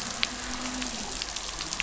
{"label": "anthrophony, boat engine", "recorder": "SoundTrap 500"}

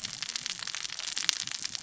{"label": "biophony, cascading saw", "recorder": "SoundTrap 600 or HydroMoth"}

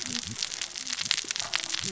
{"label": "biophony, cascading saw", "recorder": "SoundTrap 600 or HydroMoth"}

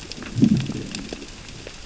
{"label": "biophony, growl", "recorder": "SoundTrap 600 or HydroMoth"}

